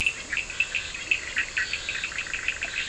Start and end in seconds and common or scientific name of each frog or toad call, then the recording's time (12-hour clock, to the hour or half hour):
0.0	2.8	Cochran's lime tree frog
0.3	2.8	Bischoff's tree frog
0.6	2.8	two-colored oval frog
1.5	2.8	Scinax perereca
11:30pm